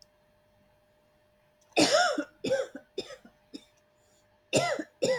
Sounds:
Cough